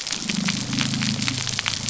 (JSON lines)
{"label": "anthrophony, boat engine", "recorder": "SoundTrap 300"}